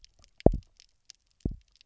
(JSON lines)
{"label": "biophony, double pulse", "recorder": "SoundTrap 300"}